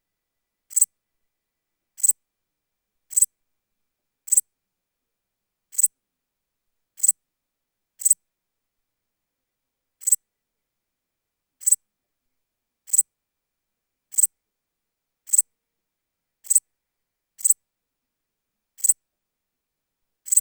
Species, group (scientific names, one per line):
Pholidoptera transsylvanica
Orthoptera